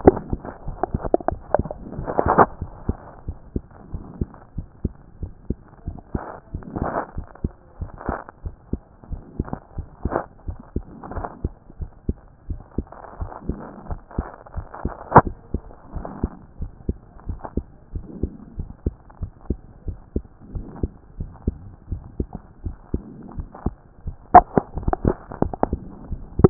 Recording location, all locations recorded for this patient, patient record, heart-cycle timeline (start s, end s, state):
other location
aortic valve (AV)+pulmonary valve (PV)+mitral valve (MV)+other location+other location
#Age: Child
#Sex: Male
#Height: 129.0 cm
#Weight: 24.8 kg
#Pregnancy status: False
#Murmur: Absent
#Murmur locations: nan
#Most audible location: nan
#Systolic murmur timing: nan
#Systolic murmur shape: nan
#Systolic murmur grading: nan
#Systolic murmur pitch: nan
#Systolic murmur quality: nan
#Diastolic murmur timing: nan
#Diastolic murmur shape: nan
#Diastolic murmur grading: nan
#Diastolic murmur pitch: nan
#Diastolic murmur quality: nan
#Outcome: Abnormal
#Campaign: 2014 screening campaign
0.00	2.62	unannotated
2.62	2.70	S1
2.70	2.86	systole
2.86	2.96	S2
2.96	3.26	diastole
3.26	3.36	S1
3.36	3.54	systole
3.54	3.62	S2
3.62	3.92	diastole
3.92	4.04	S1
4.04	4.18	systole
4.18	4.28	S2
4.28	4.56	diastole
4.56	4.66	S1
4.66	4.82	systole
4.82	4.92	S2
4.92	5.20	diastole
5.20	5.32	S1
5.32	5.48	systole
5.48	5.58	S2
5.58	5.86	diastole
5.86	5.98	S1
5.98	6.14	systole
6.14	6.22	S2
6.22	6.54	diastole
6.54	6.64	S1
6.64	6.80	systole
6.80	6.90	S2
6.90	7.16	diastole
7.16	7.26	S1
7.26	7.42	systole
7.42	7.52	S2
7.52	7.80	diastole
7.80	7.90	S1
7.90	8.06	systole
8.06	8.18	S2
8.18	8.44	diastole
8.44	8.54	S1
8.54	8.72	systole
8.72	8.80	S2
8.80	9.10	diastole
9.10	9.22	S1
9.22	9.38	systole
9.38	9.48	S2
9.48	9.76	diastole
9.76	9.88	S1
9.88	10.06	systole
10.06	10.18	S2
10.18	10.46	diastole
10.46	10.58	S1
10.58	10.74	systole
10.74	10.84	S2
10.84	11.14	diastole
11.14	11.26	S1
11.26	11.42	systole
11.42	11.52	S2
11.52	11.80	diastole
11.80	11.90	S1
11.90	12.06	systole
12.06	12.16	S2
12.16	12.48	diastole
12.48	12.60	S1
12.60	12.76	systole
12.76	12.86	S2
12.86	13.20	diastole
13.20	13.30	S1
13.30	13.48	systole
13.48	13.58	S2
13.58	13.88	diastole
13.88	14.00	S1
14.00	14.16	systole
14.16	14.28	S2
14.28	14.56	diastole
14.56	14.66	S1
14.66	14.84	systole
14.84	14.92	S2
14.92	15.21	diastole
15.21	15.32	S1
15.32	15.52	systole
15.52	15.62	S2
15.62	15.94	diastole
15.94	16.06	S1
16.06	16.22	systole
16.22	16.32	S2
16.32	16.60	diastole
16.60	16.70	S1
16.70	16.88	systole
16.88	16.96	S2
16.96	17.28	diastole
17.28	17.40	S1
17.40	17.56	systole
17.56	17.66	S2
17.66	17.94	diastole
17.94	18.06	S1
18.06	18.22	systole
18.22	18.30	S2
18.30	18.56	diastole
18.56	18.68	S1
18.68	18.84	systole
18.84	18.94	S2
18.94	19.20	diastole
19.20	19.32	S1
19.32	19.48	systole
19.48	19.58	S2
19.58	19.86	diastole
19.86	19.98	S1
19.98	20.14	systole
20.14	20.24	S2
20.24	20.54	diastole
20.54	20.66	S1
20.66	20.82	systole
20.82	20.90	S2
20.90	21.18	diastole
21.18	21.30	S1
21.30	21.46	systole
21.46	21.56	S2
21.56	21.90	diastole
21.90	22.02	S1
22.02	22.18	systole
22.18	22.28	S2
22.28	22.64	diastole
22.64	22.76	S1
22.76	22.92	systole
22.92	23.02	S2
23.02	23.36	diastole
23.36	23.48	S1
23.48	23.64	systole
23.64	23.74	S2
23.74	24.06	diastole
24.06	26.50	unannotated